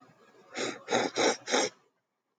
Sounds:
Sniff